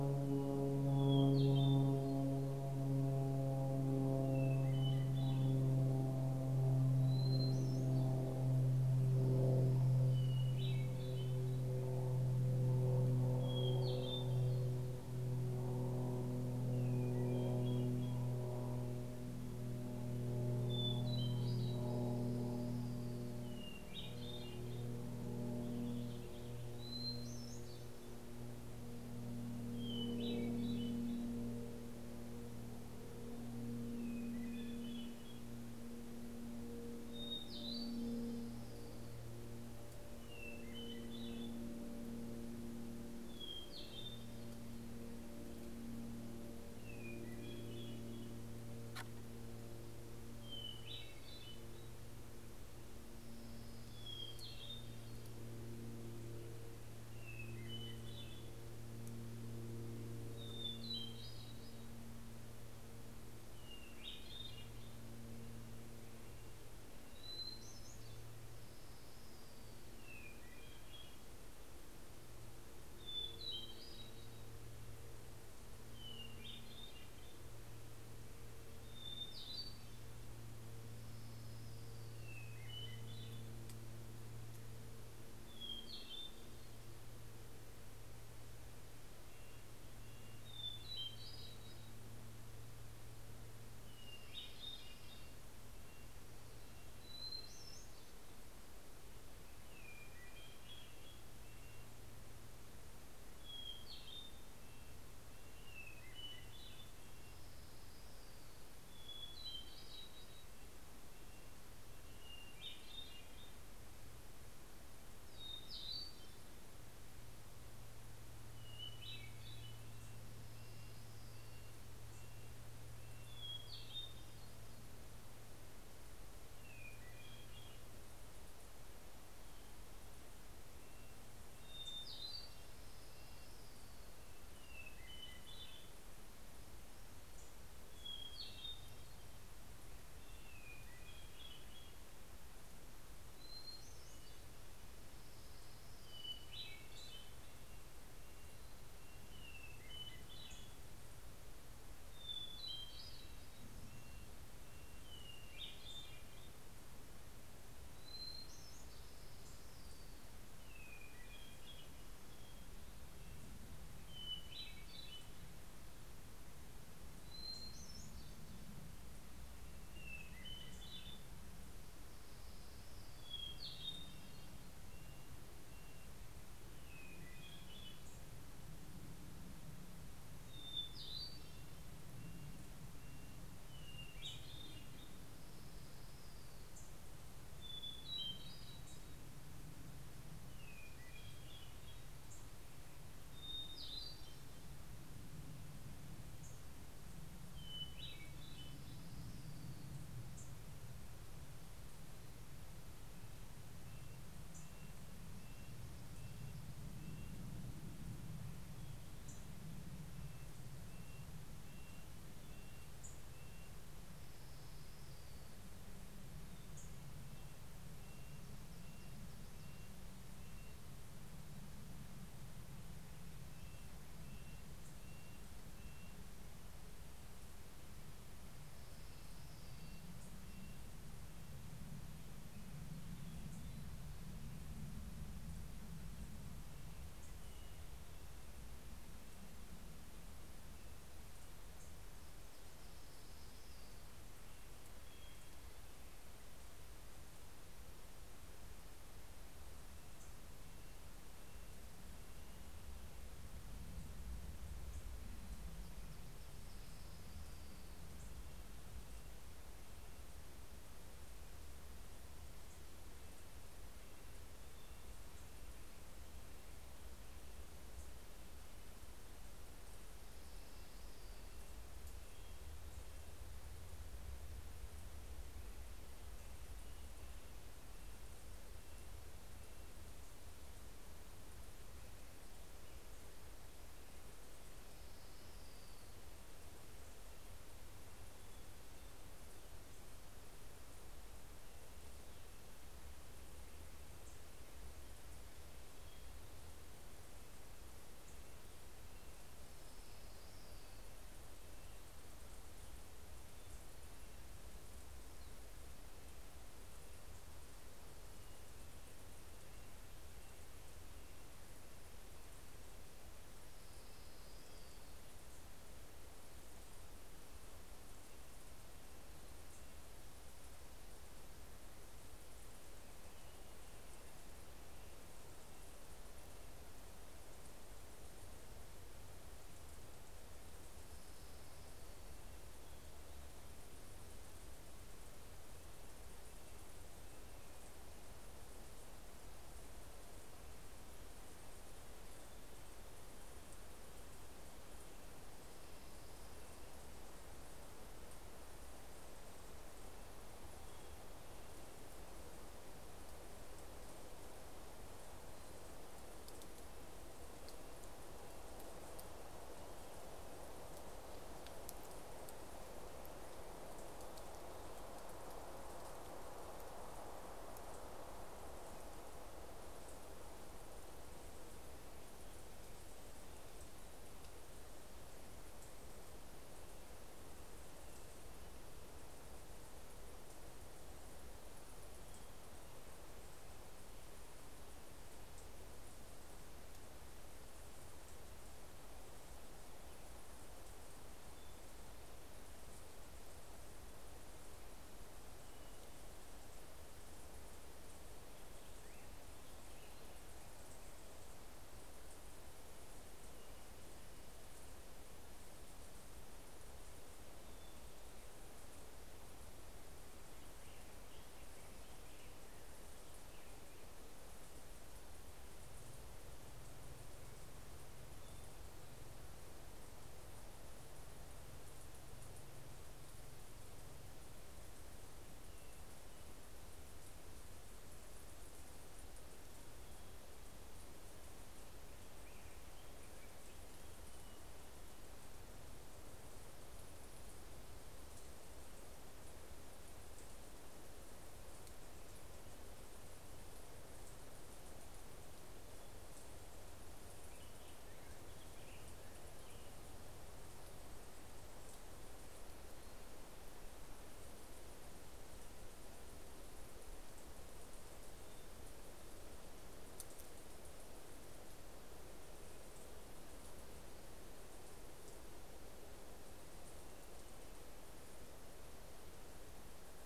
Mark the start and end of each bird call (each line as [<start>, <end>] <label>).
[0.02, 2.62] Hermit Thrush (Catharus guttatus)
[3.92, 8.72] Hermit Thrush (Catharus guttatus)
[9.52, 12.22] Hermit Thrush (Catharus guttatus)
[13.12, 15.22] Hermit Thrush (Catharus guttatus)
[16.42, 18.82] Hermit Thrush (Catharus guttatus)
[20.62, 22.12] Hermit Thrush (Catharus guttatus)
[21.92, 23.62] Orange-crowned Warbler (Leiothlypis celata)
[23.22, 25.02] Hermit Thrush (Catharus guttatus)
[25.32, 27.12] Warbling Vireo (Vireo gilvus)
[26.22, 28.42] Hermit Thrush (Catharus guttatus)
[29.62, 31.92] Hermit Thrush (Catharus guttatus)
[33.52, 35.72] Hermit Thrush (Catharus guttatus)
[36.92, 38.52] Hermit Thrush (Catharus guttatus)
[37.62, 39.32] Orange-crowned Warbler (Leiothlypis celata)
[39.62, 42.12] Hermit Thrush (Catharus guttatus)
[42.82, 44.92] Hermit Thrush (Catharus guttatus)
[46.62, 48.72] Hermit Thrush (Catharus guttatus)
[50.22, 52.12] Hermit Thrush (Catharus guttatus)
[52.72, 54.82] Orange-crowned Warbler (Leiothlypis celata)
[53.32, 55.72] Hermit Thrush (Catharus guttatus)
[56.72, 58.82] Hermit Thrush (Catharus guttatus)
[60.12, 62.32] Hermit Thrush (Catharus guttatus)
[63.12, 65.32] Hermit Thrush (Catharus guttatus)
[65.02, 67.82] Red-breasted Nuthatch (Sitta canadensis)
[66.72, 68.42] Hermit Thrush (Catharus guttatus)
[68.22, 70.22] Orange-crowned Warbler (Leiothlypis celata)
[69.52, 71.82] Hermit Thrush (Catharus guttatus)
[72.82, 75.12] Hermit Thrush (Catharus guttatus)
[76.22, 77.62] Hermit Thrush (Catharus guttatus)
[78.42, 80.32] Hermit Thrush (Catharus guttatus)
[80.92, 82.62] Orange-crowned Warbler (Leiothlypis celata)
[82.22, 84.22] Hermit Thrush (Catharus guttatus)
[85.32, 87.12] Hermit Thrush (Catharus guttatus)
[88.62, 91.22] Red-breasted Nuthatch (Sitta canadensis)
[90.22, 91.22] Hermit Thrush (Catharus guttatus)
[93.92, 95.42] Hermit Thrush (Catharus guttatus)
[93.92, 95.52] Orange-crowned Warbler (Leiothlypis celata)
[94.72, 98.02] Red-breasted Nuthatch (Sitta canadensis)
[97.22, 98.62] Hermit Thrush (Catharus guttatus)
[99.42, 101.42] Hermit Thrush (Catharus guttatus)
[103.22, 104.42] Hermit Thrush (Catharus guttatus)
[103.92, 107.42] Red-breasted Nuthatch (Sitta canadensis)
[105.52, 107.12] Hermit Thrush (Catharus guttatus)
[107.12, 109.02] Orange-crowned Warbler (Leiothlypis celata)
[109.02, 110.52] Hermit Thrush (Catharus guttatus)
[110.02, 112.72] Red-breasted Nuthatch (Sitta canadensis)
[112.12, 114.02] Hermit Thrush (Catharus guttatus)
[115.02, 117.02] Hermit Thrush (Catharus guttatus)
[118.42, 120.12] Hermit Thrush (Catharus guttatus)
[119.62, 124.22] Red-breasted Nuthatch (Sitta canadensis)
[119.72, 122.42] Orange-crowned Warbler (Leiothlypis celata)
[123.32, 124.82] Hermit Thrush (Catharus guttatus)
[126.02, 128.52] Hermit Thrush (Catharus guttatus)
[130.32, 133.82] Red-breasted Nuthatch (Sitta canadensis)
[131.02, 134.32] Orange-crowned Warbler (Leiothlypis celata)
[133.92, 136.32] Hermit Thrush (Catharus guttatus)
[137.32, 139.52] Hermit Thrush (Catharus guttatus)
[140.12, 142.02] Hermit Thrush (Catharus guttatus)
[143.22, 144.92] Hermit Thrush (Catharus guttatus)
[145.22, 147.32] Orange-crowned Warbler (Leiothlypis celata)
[146.12, 148.02] Hermit Thrush (Catharus guttatus)
[146.72, 147.52] Hermit Warbler (Setophaga occidentalis)
[147.02, 149.82] Red-breasted Nuthatch (Sitta canadensis)
[149.12, 151.02] Hermit Thrush (Catharus guttatus)
[150.22, 151.12] Hermit Warbler (Setophaga occidentalis)
[152.02, 153.52] Hermit Thrush (Catharus guttatus)
[152.92, 155.22] Red-breasted Nuthatch (Sitta canadensis)
[155.12, 156.52] Hermit Warbler (Setophaga occidentalis)
[155.42, 157.22] Hermit Thrush (Catharus guttatus)
[158.02, 159.12] Hermit Thrush (Catharus guttatus)
[158.72, 160.42] Orange-crowned Warbler (Leiothlypis celata)
[160.32, 163.52] Hermit Thrush (Catharus guttatus)
[163.92, 165.72] Hermit Thrush (Catharus guttatus)
[166.92, 168.92] Hermit Thrush (Catharus guttatus)
[169.82, 171.72] Hermit Thrush (Catharus guttatus)
[171.72, 173.52] Orange-crowned Warbler (Leiothlypis celata)
[172.92, 174.72] Hermit Thrush (Catharus guttatus)
[173.32, 176.52] Red-breasted Nuthatch (Sitta canadensis)
[176.32, 178.22] Hermit Thrush (Catharus guttatus)
[177.92, 178.72] Hermit Warbler (Setophaga occidentalis)
[180.02, 181.72] Hermit Thrush (Catharus guttatus)
[181.42, 184.12] Red-breasted Nuthatch (Sitta canadensis)
[183.52, 184.72] Hermit Warbler (Setophaga occidentalis)
[183.82, 185.22] Hermit Thrush (Catharus guttatus)
[185.22, 186.92] Orange-crowned Warbler (Leiothlypis celata)
[186.22, 189.82] Hermit Warbler (Setophaga occidentalis)
[187.42, 189.92] Hermit Thrush (Catharus guttatus)
[190.32, 192.42] Hermit Thrush (Catharus guttatus)
[191.72, 192.92] Hermit Warbler (Setophaga occidentalis)
[193.12, 194.92] Hermit Thrush (Catharus guttatus)
[196.12, 197.02] Hermit Warbler (Setophaga occidentalis)
[197.62, 199.22] Hermit Thrush (Catharus guttatus)
[198.32, 200.32] Orange-crowned Warbler (Leiothlypis celata)
[200.02, 200.92] Hermit Warbler (Setophaga occidentalis)
[203.12, 207.82] Red-breasted Nuthatch (Sitta canadensis)
[204.32, 205.02] Hermit Warbler (Setophaga occidentalis)
[208.82, 209.72] Hermit Warbler (Setophaga occidentalis)
[209.22, 214.02] Red-breasted Nuthatch (Sitta canadensis)
[212.72, 213.72] Hermit Warbler (Setophaga occidentalis)
[213.72, 216.22] Orange-crowned Warbler (Leiothlypis celata)
[216.12, 217.12] Hermit Warbler (Setophaga occidentalis)
[216.52, 221.22] Red-breasted Nuthatch (Sitta canadensis)
[223.32, 226.62] Red-breasted Nuthatch (Sitta canadensis)
[228.32, 232.02] Red-breasted Nuthatch (Sitta canadensis)
[228.52, 230.82] Orange-crowned Warbler (Leiothlypis celata)
[229.92, 230.82] Hermit Warbler (Setophaga occidentalis)
[233.12, 234.12] Hermit Warbler (Setophaga occidentalis)
[236.82, 237.62] Hermit Warbler (Setophaga occidentalis)
[237.52, 241.32] Red-breasted Nuthatch (Sitta canadensis)
[241.42, 242.42] Hermit Warbler (Setophaga occidentalis)
[242.52, 244.52] Orange-crowned Warbler (Leiothlypis celata)
[243.52, 246.52] Hermit Warbler (Setophaga occidentalis)
[249.62, 253.22] Red-breasted Nuthatch (Sitta canadensis)
[256.02, 258.32] Orange-crowned Warbler (Leiothlypis celata)
[257.12, 261.02] Red-breasted Nuthatch (Sitta canadensis)
[262.42, 267.42] Red-breasted Nuthatch (Sitta canadensis)
[269.62, 273.92] Red-breasted Nuthatch (Sitta canadensis)
[270.02, 272.12] Orange-crowned Warbler (Leiothlypis celata)
[276.02, 280.12] Red-breasted Nuthatch (Sitta canadensis)
[284.62, 286.72] Orange-crowned Warbler (Leiothlypis celata)
[284.62, 291.32] Red-breasted Nuthatch (Sitta canadensis)
[295.92, 302.42] Red-breasted Nuthatch (Sitta canadensis)
[299.02, 301.72] Orange-crowned Warbler (Leiothlypis celata)
[304.02, 311.82] Red-breasted Nuthatch (Sitta canadensis)
[313.02, 315.82] Orange-crowned Warbler (Leiothlypis celata)
[317.02, 320.82] Red-breasted Nuthatch (Sitta canadensis)
[322.72, 327.02] Red-breasted Nuthatch (Sitta canadensis)
[330.92, 332.62] Red-breasted Nuthatch (Sitta canadensis)
[335.32, 338.92] Red-breasted Nuthatch (Sitta canadensis)
[342.02, 347.12] Red-breasted Nuthatch (Sitta canadensis)
[349.92, 352.22] Red-breasted Nuthatch (Sitta canadensis)
[356.12, 360.62] Red-breasted Nuthatch (Sitta canadensis)
[398.12, 401.62] Black-headed Grosbeak (Pheucticus melanocephalus)
[410.32, 414.42] Black-headed Grosbeak (Pheucticus melanocephalus)
[446.82, 450.32] Black-headed Grosbeak (Pheucticus melanocephalus)